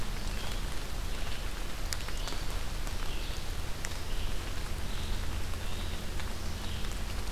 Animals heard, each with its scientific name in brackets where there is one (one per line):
Red-eyed Vireo (Vireo olivaceus)